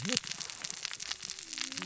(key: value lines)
label: biophony, cascading saw
recorder: SoundTrap 600 or HydroMoth